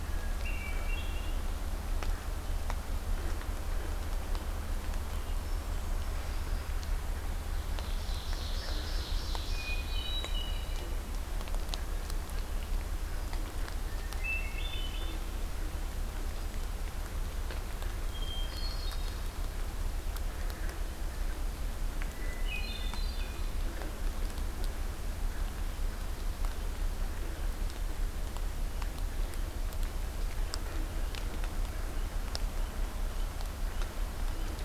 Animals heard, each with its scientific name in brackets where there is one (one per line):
Hermit Thrush (Catharus guttatus)
Ovenbird (Seiurus aurocapilla)